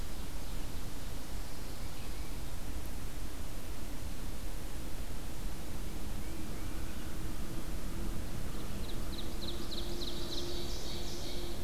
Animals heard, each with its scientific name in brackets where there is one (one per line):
Tufted Titmouse (Baeolophus bicolor)
Ovenbird (Seiurus aurocapilla)